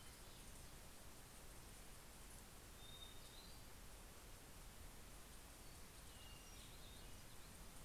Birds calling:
Hermit Thrush (Catharus guttatus)

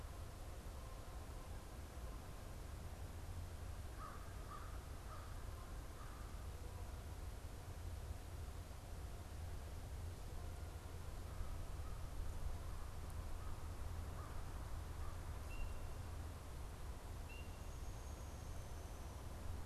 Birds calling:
American Crow (Corvus brachyrhynchos)
Downy Woodpecker (Dryobates pubescens)
Canada Goose (Branta canadensis)

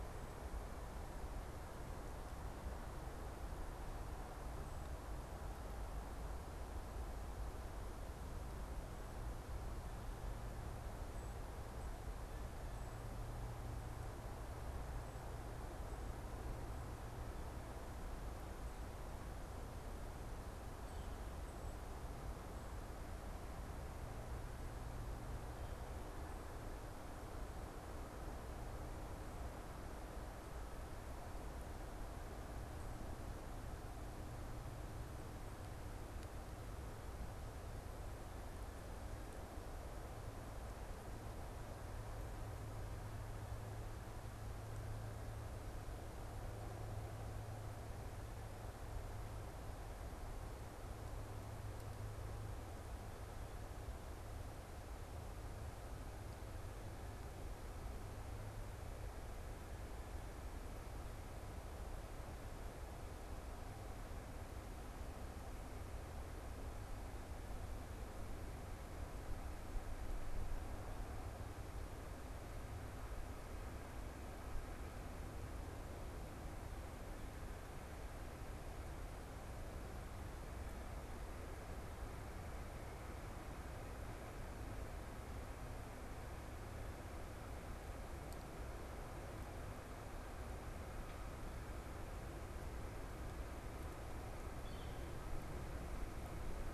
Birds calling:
Northern Flicker (Colaptes auratus)

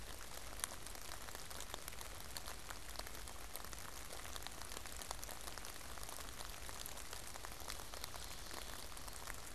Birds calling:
Ovenbird (Seiurus aurocapilla)

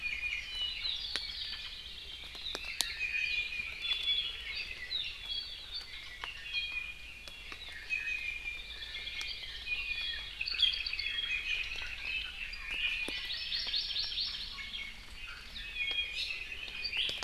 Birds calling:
Hawaii Creeper (Loxops mana)
Apapane (Himatione sanguinea)
Iiwi (Drepanis coccinea)
Hawaii Amakihi (Chlorodrepanis virens)

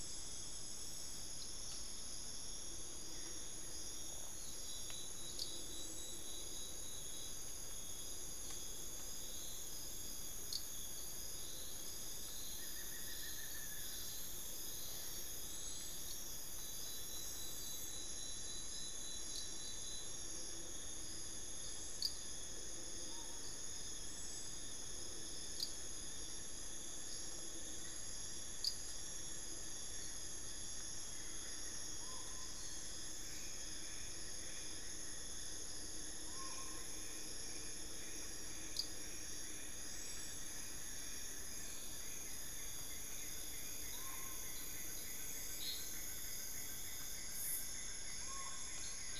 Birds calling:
Black-fronted Nunbird (Monasa nigrifrons)
Collared Forest-Falcon (Micrastur semitorquatus)
Buff-throated Woodcreeper (Xiphorhynchus guttatus)

